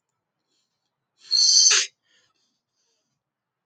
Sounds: Sniff